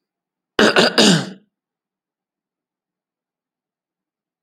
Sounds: Throat clearing